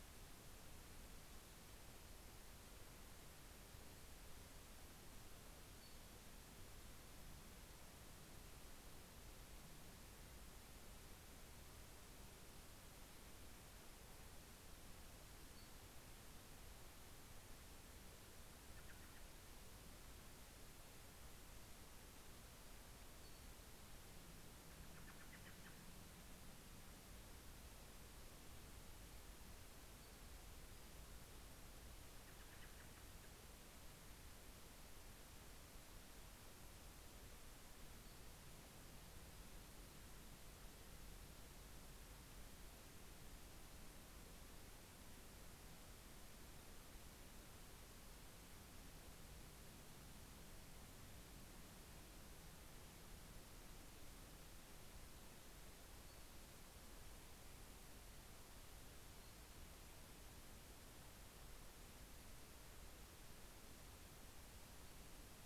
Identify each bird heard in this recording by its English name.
Brown Creeper, American Robin